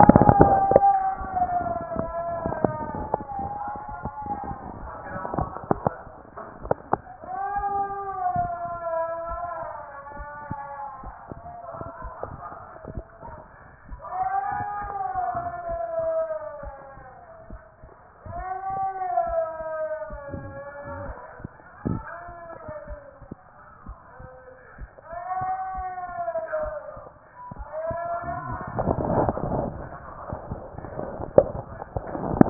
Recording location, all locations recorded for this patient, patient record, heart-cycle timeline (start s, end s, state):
mitral valve (MV)
pulmonary valve (PV)+tricuspid valve (TV)+mitral valve (MV)
#Age: nan
#Sex: Female
#Height: nan
#Weight: nan
#Pregnancy status: True
#Murmur: Absent
#Murmur locations: nan
#Most audible location: nan
#Systolic murmur timing: nan
#Systolic murmur shape: nan
#Systolic murmur grading: nan
#Systolic murmur pitch: nan
#Systolic murmur quality: nan
#Diastolic murmur timing: nan
#Diastolic murmur shape: nan
#Diastolic murmur grading: nan
#Diastolic murmur pitch: nan
#Diastolic murmur quality: nan
#Outcome: Normal
#Campaign: 2014 screening campaign
0.00	7.21	unannotated
7.21	7.56	diastole
7.56	7.66	S1
7.66	7.80	systole
7.80	7.96	S2
7.96	8.36	diastole
8.36	8.50	S1
8.50	8.68	systole
8.68	8.78	S2
8.78	9.30	diastole
9.30	9.40	S1
9.40	9.60	systole
9.60	9.70	S2
9.70	10.16	diastole
10.16	10.28	S1
10.28	10.48	systole
10.48	10.58	S2
10.58	11.04	diastole
11.04	11.14	S1
11.14	11.32	systole
11.32	11.42	S2
11.42	12.02	diastole
12.02	12.14	S1
12.14	12.30	systole
12.30	12.38	S2
12.38	12.90	diastole
12.90	13.04	S1
13.04	13.26	systole
13.26	13.36	S2
13.36	13.67	diastole
13.67	32.50	unannotated